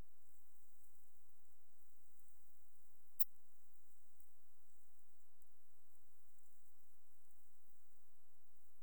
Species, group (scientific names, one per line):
Steropleurus andalusius
Orthoptera